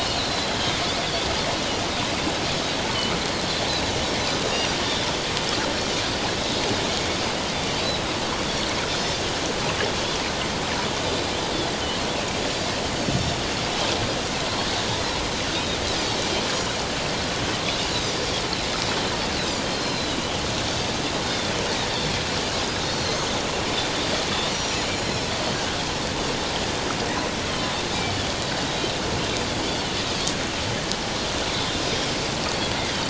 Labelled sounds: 0.0	1.3	Pacific white-sided dolphin, 3.1 to 4.5 kHz
4.4	4.7	Pacific white-sided dolphin, 3.6 to 3.8 kHz
15.5	15.8	Pacific white-sided dolphin, 3.5 to 3.8 kHz
19.7	20.2	Pacific white-sided dolphin, 3.7 to 4.3 kHz
21.2	21.5	Pacific white-sided dolphin, 3.4 to 3.7 kHz
22.8	23.2	Pacific white-sided dolphin, 4.0 to 4.5 kHz
24.5	25.3	Pacific white-sided dolphin, 4.0 to 5.9 kHz
31.6	31.8	Pacific white-sided dolphin, 3.4 to 3.6 kHz

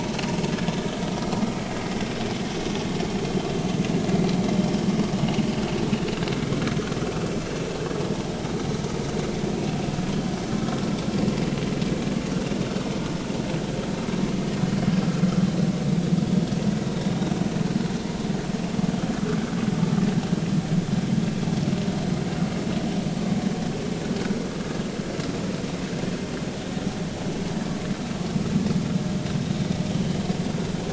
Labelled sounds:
29.9	30.2	vessel noise, 2.8 to 3.2 kHz

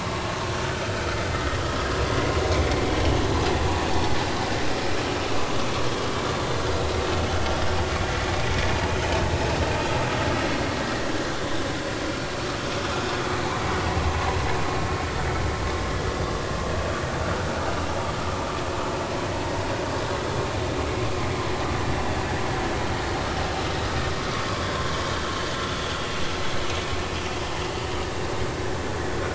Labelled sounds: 1.3	1.6	vessel noise, 1.8 to 2.0 kHz
3.7	3.9	vessel noise, 2.4 to 2.6 kHz

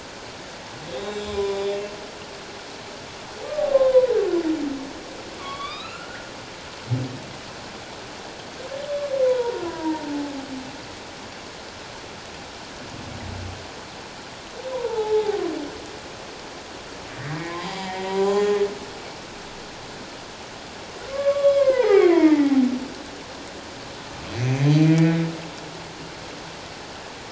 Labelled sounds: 0.9	1.7	humpback whale, 0.94 to 7.3 kHz
3.4	4.1	humpback whale, 0.94 to 1.2 kHz
5.4	6.3	humpback whale, 1.0 to 4.1 kHz
9.2	10.3	humpback whale, 0.81 to 3.6 kHz
14.7	15.4	humpback whale, 0.78 to 1.1 kHz
17.5	18.7	humpback whale, 0.78 to 5.0 kHz
21.1	22.7	humpback whale, 0.78 to 3.4 kHz

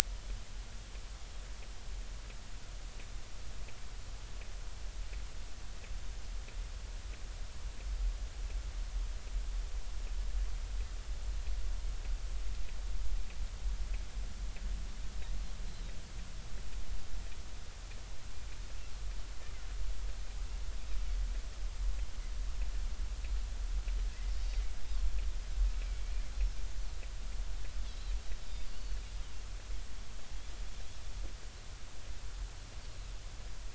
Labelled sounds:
25.7	26.0	Pacific white-sided dolphin, 2.2 to 2.4 kHz
27.9	29.0	Pacific white-sided dolphin, 3.7 to 4.9 kHz

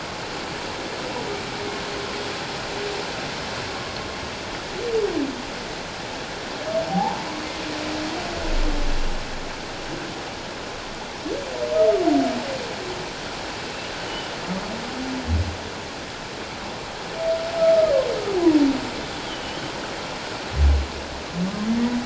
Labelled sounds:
6.9	7.3	humpback whale, 0.78 to 1.0 kHz
14.1	14.3	humpback whale, 2.9 to 3.1 kHz
19.3	19.6	humpback whale, 2.9 to 3.3 kHz

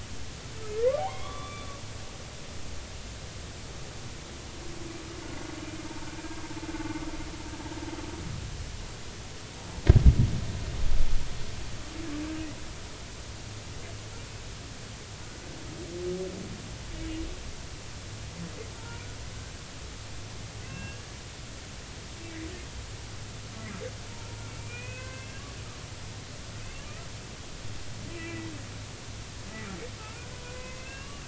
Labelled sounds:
1.0	1.8	humpback whale, 0.80 to 3.6 kHz
18.7	19.0	humpback whale, 0.86 to 1.5 kHz
20.6	21.1	humpback whale, 1.5 to 2.8 kHz
24.6	25.4	humpback whale, 1.5 to 3.0 kHz
26.6	26.8	humpback whale, 2.5 to 2.8 kHz
28.1	28.5	humpback whale, 1.9 to 2.8 kHz
30.0	31.2	humpback whale, 0.93 to 2.9 kHz

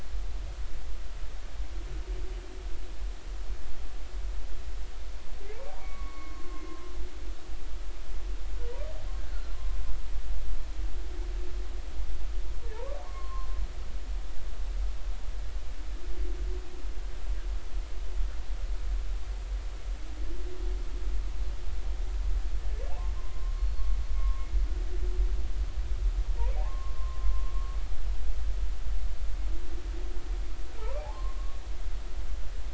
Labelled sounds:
5.8	6.5	humpback whale, 1.0 to 2.3 kHz
12.7	13.5	humpback whale, 0.83 to 1.2 kHz
23.2	24.5	humpback whale, 0.93 to 4.4 kHz
26.6	27.2	humpback whale, 0.80 to 1.2 kHz
30.8	31.6	humpback whale, 0.80 to 2.4 kHz

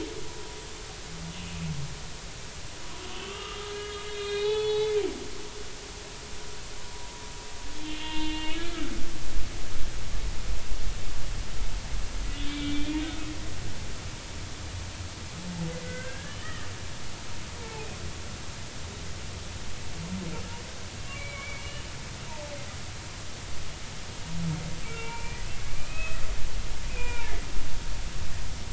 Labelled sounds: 3.0	5.0	humpback whale, 0.80 to 4.4 kHz
7.8	8.8	humpback whale, 0.86 to 3.8 kHz
12.5	13.0	humpback whale, 2.3 to 3.8 kHz
15.8	16.7	humpback whale, 1.2 to 2.1 kHz
20.3	22.5	humpback whale, 0.83 to 3.0 kHz
24.8	25.4	humpback whale, 0.86 to 2.8 kHz
25.7	26.2	humpback whale, 1.1 to 2.7 kHz
26.9	27.5	humpback whale, 0.83 to 2.6 kHz

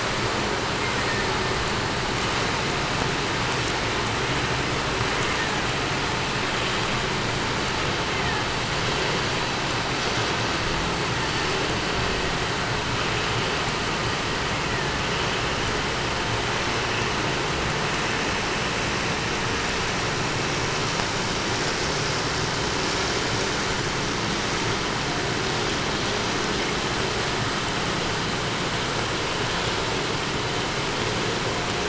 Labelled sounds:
0.6	1.7	killer whale, 1.3 to 2.5 kHz
4.9	6.0	killer whale, 0.66 to 2.5 kHz
7.8	8.6	killer whale, 1.0 to 3.2 kHz
10.8	11.7	killer whale, 0.52 to 2.4 kHz
14.3	15.3	killer whale, 1.3 to 2.8 kHz

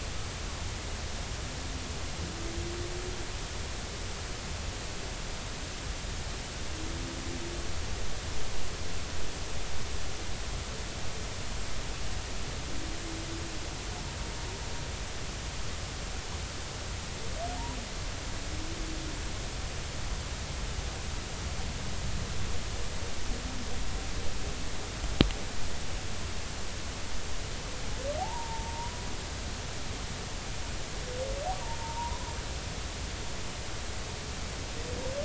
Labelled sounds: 28.2	29.0	humpback whale, 0.80 to 1.1 kHz
31.6	32.3	humpback whale, 0.86 to 1.1 kHz

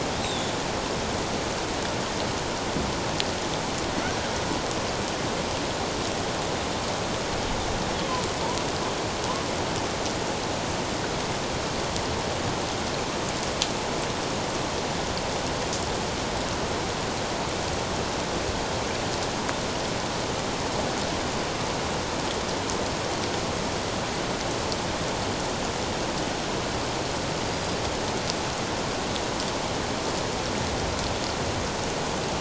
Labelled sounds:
0.2	0.5	killer whale, Bigg's (transient), 3.3 to 4.1 kHz
27.5	27.7	killer whale, Bigg's (transient), 4.7 to 5.0 kHz

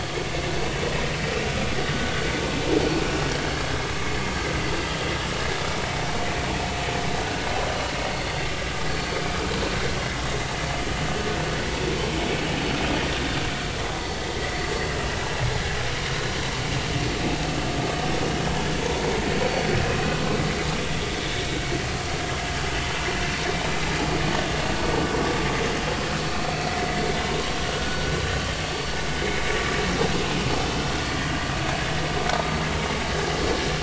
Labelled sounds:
7.7	7.9	vessel noise, 2.8 to 3.0 kHz
19.3	19.7	vessel noise, 4.4 to 4.5 kHz
27.8	28.0	vessel noise, 1.3 to 1.5 kHz

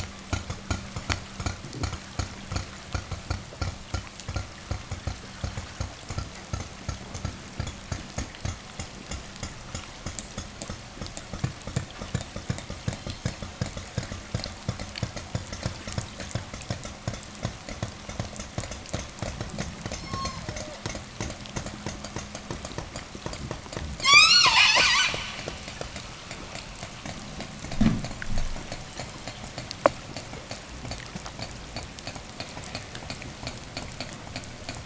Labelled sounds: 12.5	13.7	killer whale, southern resident, 2.5 to 5.0 kHz
19.7	20.9	killer whale, southern resident, 0 to 8.0 kHz
23.9	25.6	killer whale, southern resident, call S10, 0 to 8.0 kHz

